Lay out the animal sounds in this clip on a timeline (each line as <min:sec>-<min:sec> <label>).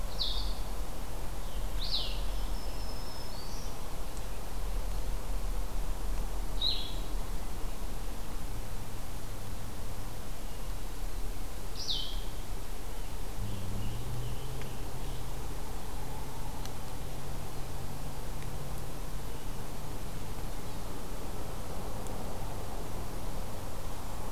0:00.0-0:02.3 Blue-headed Vireo (Vireo solitarius)
0:01.9-0:03.8 Black-throated Green Warbler (Setophaga virens)
0:06.2-0:07.2 Blue-headed Vireo (Vireo solitarius)
0:11.6-0:12.6 Blue-headed Vireo (Vireo solitarius)
0:13.2-0:15.5 American Robin (Turdus migratorius)